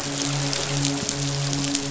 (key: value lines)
label: biophony, midshipman
recorder: SoundTrap 500